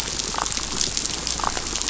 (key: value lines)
label: biophony, damselfish
recorder: SoundTrap 500